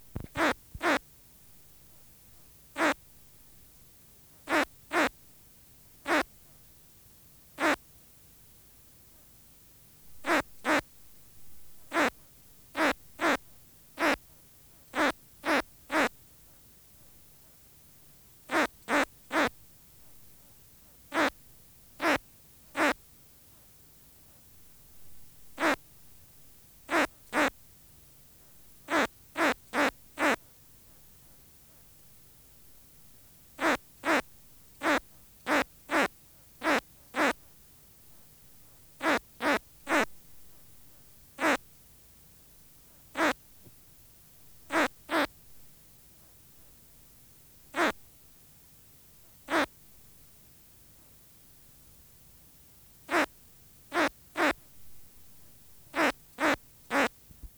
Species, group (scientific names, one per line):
Poecilimon luschani
Orthoptera